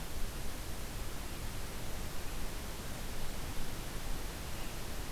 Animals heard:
forest ambience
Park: Katahdin Woods and Waters National Monument